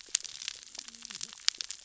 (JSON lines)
{"label": "biophony, cascading saw", "recorder": "SoundTrap 600 or HydroMoth"}